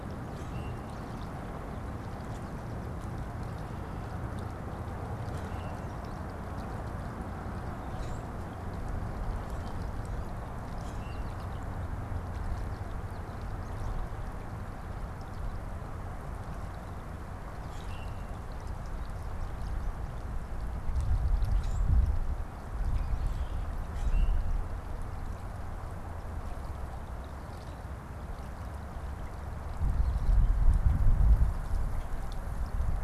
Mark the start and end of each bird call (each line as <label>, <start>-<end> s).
Common Grackle (Quiscalus quiscula), 0.4-0.9 s
Common Grackle (Quiscalus quiscula), 5.4-6.0 s
American Goldfinch (Spinus tristis), 5.7-6.6 s
Common Grackle (Quiscalus quiscula), 7.9-8.5 s
American Goldfinch (Spinus tristis), 10.6-14.7 s
Common Grackle (Quiscalus quiscula), 10.9-11.4 s
Common Grackle (Quiscalus quiscula), 17.7-18.2 s
Common Grackle (Quiscalus quiscula), 21.5-22.1 s
Common Grackle (Quiscalus quiscula), 22.8-24.7 s
American Goldfinch (Spinus tristis), 29.9-30.6 s